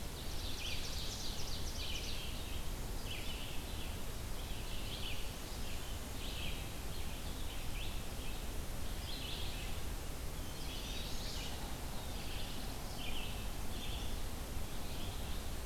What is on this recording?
Red-eyed Vireo, Ovenbird, Eastern Wood-Pewee, Chestnut-sided Warbler, Black-throated Blue Warbler